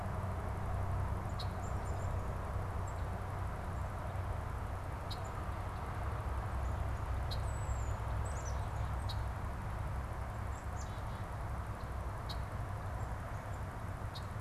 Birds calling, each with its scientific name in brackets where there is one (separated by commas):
Red-winged Blackbird (Agelaius phoeniceus), unidentified bird, Black-capped Chickadee (Poecile atricapillus), Tufted Titmouse (Baeolophus bicolor)